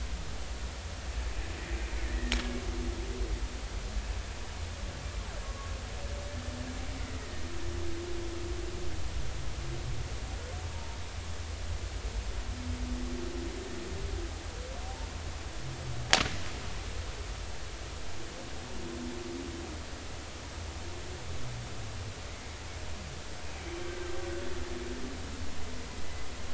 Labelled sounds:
2.0	2.3	killer whale, Bigg's (transient), 1.7 to 2.0 kHz
5.4	5.7	killer whale, Bigg's (transient), 1.0 to 1.2 kHz
6.9	7.5	killer whale, Bigg's (transient), 1.8 to 2.3 kHz
10.7	11.0	killer whale, Bigg's (transient), 0.86 to 0.99 kHz

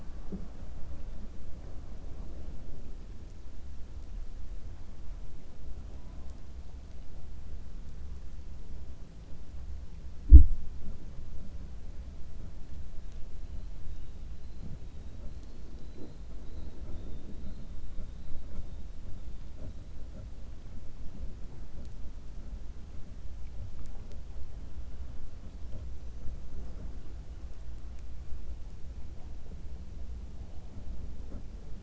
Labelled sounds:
15.7	16.2	killer whale, 3.7 to 4.8 kHz

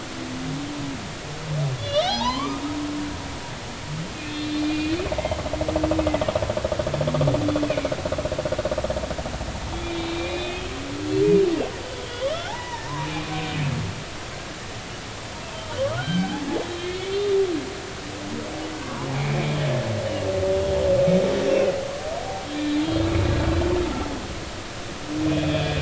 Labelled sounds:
1.8	2.7	humpback whale, 0.80 to 4.2 kHz
4.3	5.0	humpback whale, 2.4 to 4.4 kHz
7.6	7.9	humpback whale, 2.1 to 2.6 kHz
9.8	10.7	humpback whale, 2.2 to 4.0 kHz
12.1	13.6	humpback whale, 0.80 to 3.5 kHz
15.8	17.4	humpback whale, 0.80 to 4.7 kHz
18.8	19.6	humpback whale, 0.83 to 2.5 kHz
21.5	21.7	humpback whale, 2.4 to 2.8 kHz
22.5	22.8	humpback whale, 2.3 to 2.4 kHz
25.3	25.8	humpback whale, 2.3 to 3.5 kHz

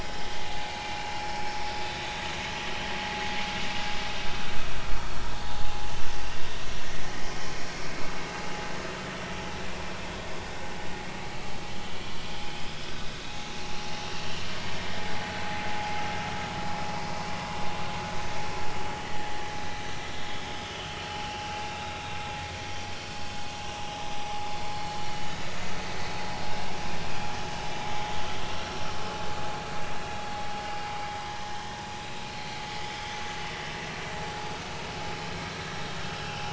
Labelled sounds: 2.7	3.0	vessel noise, 5.6 to 5.9 kHz
11.8	12.1	vessel noise, 2.9 to 3.2 kHz
16.6	16.9	vessel noise, 5.0 to 5.2 kHz
19.1	19.3	vessel noise, 1.7 to 2.0 kHz
21.7	22.2	vessel noise, 3.6 to 3.9 kHz
26.5	26.7	vessel noise, 3.6 to 3.8 kHz
28.6	28.8	vessel noise, 5.4 to 5.8 kHz
31.3	31.8	vessel noise, 1.7 to 1.9 kHz
36.2	36.5	vessel noise, 2.5 to 2.8 kHz

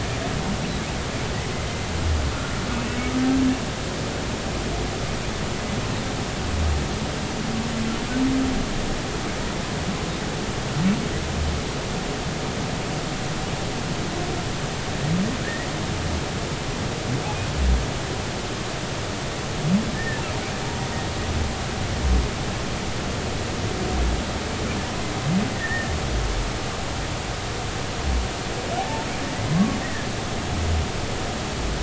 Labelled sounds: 19.9	20.2	humpback whale, 1.7 to 1.9 kHz
25.6	25.9	humpback whale, 1.7 to 2.0 kHz
28.8	30.1	humpback whale, 0.80 to 2.0 kHz

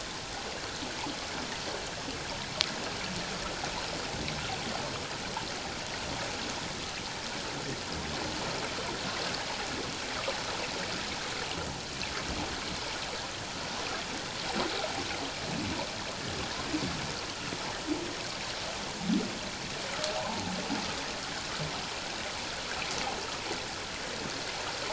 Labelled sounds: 20.2	20.5	water noise, 0.78 to 1.1 kHz

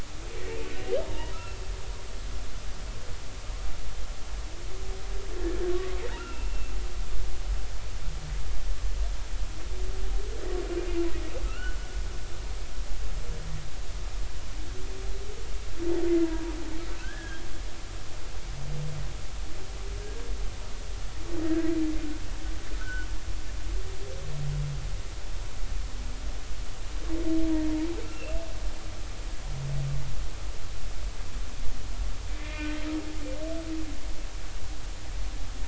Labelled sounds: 1.1	1.6	humpback whale, 0.86 to 2.8 kHz
6.1	6.7	humpback whale, 2.6 to 2.9 kHz
11.4	11.8	humpback whale, 1.2 to 3.0 kHz
17.0	17.4	humpback whale, 1.4 to 1.8 kHz
22.8	23.1	humpback whale, 1.4 to 1.6 kHz
28.0	28.4	humpback whale, 2.6 to 2.8 kHz
32.4	32.8	humpback whale, 1.8 to 2.5 kHz

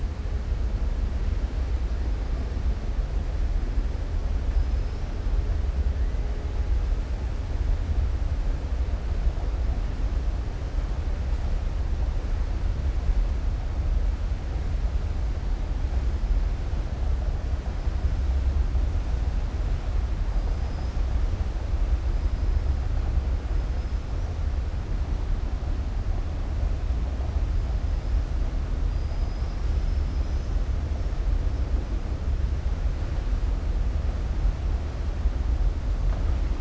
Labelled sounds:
4.5	5.0	killer whale, southern resident, 4.6 to 5.8 kHz

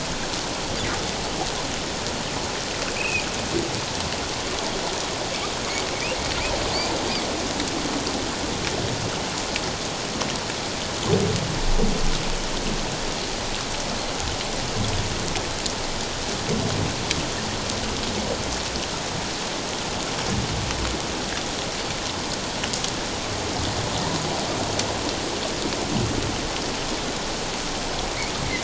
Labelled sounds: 3.0	3.2	humpback whale, 2.3 to 2.9 kHz

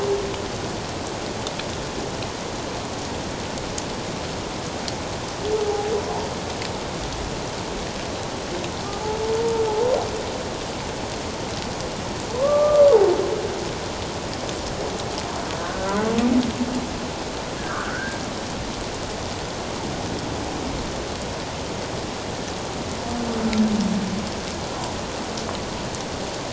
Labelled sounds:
5.7	5.9	humpback whale, 0.78 to 0.97 kHz
12.3	12.9	humpback whale, 0.97 to 1.3 kHz
15.6	16.0	humpback whale, 1.4 to 1.6 kHz
17.6	18.2	humpback whale, 1.1 to 1.8 kHz

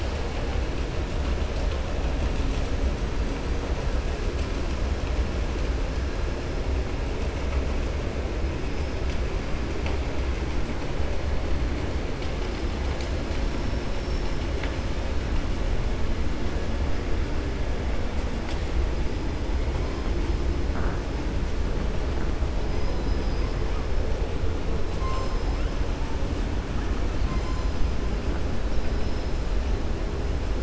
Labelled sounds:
13.5	14.4	killer whale, 4.8 to 5.9 kHz

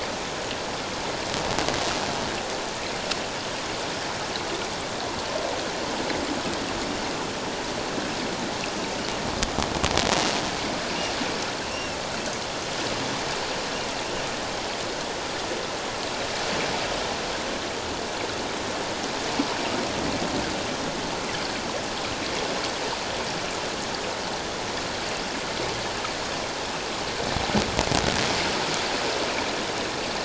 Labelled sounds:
11.7	12.0	killer whale, offshore, 2.6 to 2.8 kHz

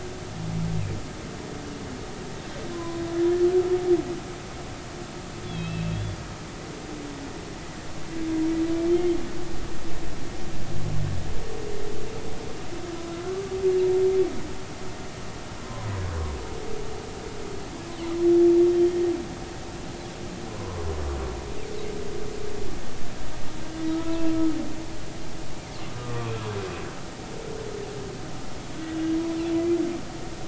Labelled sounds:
2.7	3.0	humpback whale, 0.96 to 1.1 kHz
5.4	6.2	humpback whale, 2.5 to 3.5 kHz
8.9	9.2	humpback whale, 2.1 to 3.3 kHz
18.7	19.0	humpback whale, 3.1 to 3.2 kHz
20.5	20.8	humpback whale, 0.93 to 1.2 kHz
23.9	24.3	humpback whale, 0.90 to 1.4 kHz
25.9	26.3	humpback whale, 1.0 to 1.2 kHz

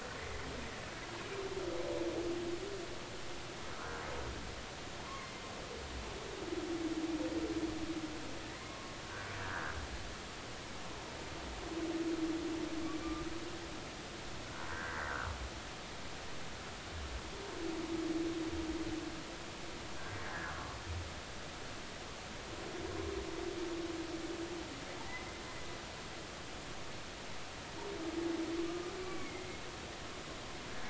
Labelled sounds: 0.2	0.5	humpback whale, 1.9 to 2.1 kHz
3.8	4.0	humpback whale, 1.2 to 1.7 kHz
5.0	5.3	humpback whale, 0.93 to 1.2 kHz
8.5	9.8	humpback whale, 1.0 to 2.2 kHz
14.7	15.0	humpback whale, 1.4 to 1.9 kHz
20.3	20.8	humpback whale, 0.99 to 1.9 kHz
29.0	29.5	humpback whale, 1.1 to 2.4 kHz

